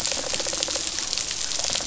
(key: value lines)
label: biophony, rattle response
recorder: SoundTrap 500